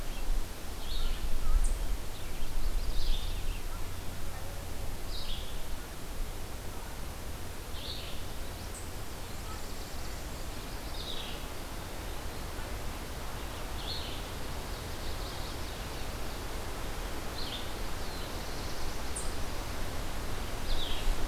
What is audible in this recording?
Red-eyed Vireo, Chestnut-sided Warbler, Ovenbird, Black-throated Blue Warbler